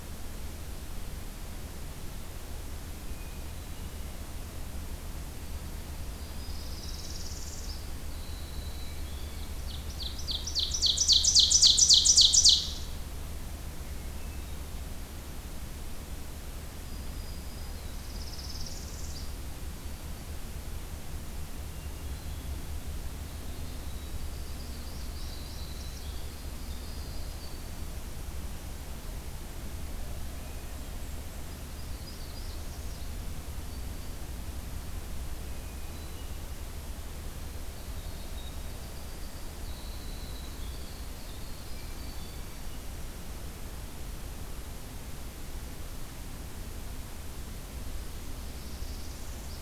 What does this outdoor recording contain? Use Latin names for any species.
Troglodytes hiemalis, Setophaga americana, Seiurus aurocapilla, Catharus guttatus, Setophaga virens, Regulus satrapa